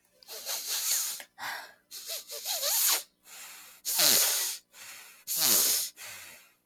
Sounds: Sniff